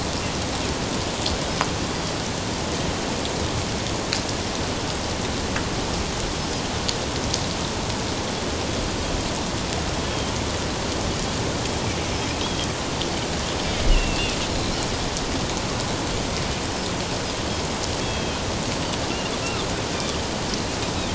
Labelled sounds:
6.4	6.6	Pacific white-sided dolphin, 4.9 to 5.3 kHz
12.4	12.7	Pacific white-sided dolphin, 3.1 to 3.4 kHz
13.9	14.4	Pacific white-sided dolphin, 2.5 to 3.0 kHz
18.0	18.4	Pacific white-sided dolphin, 2.5 to 3.4 kHz

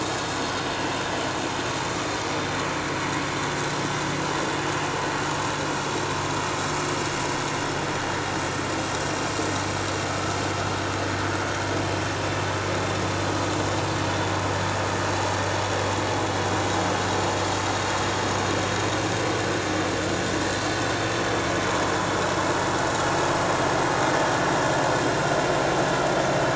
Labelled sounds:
8.7	9.1	vessel noise, 7.4 to 7.7 kHz

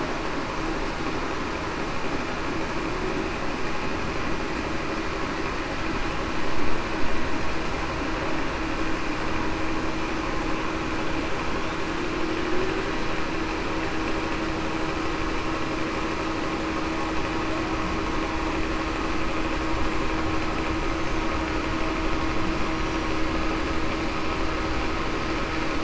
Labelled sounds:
22.7	23.1	killer whale, Bigg's (transient), 5.6 to 5.7 kHz

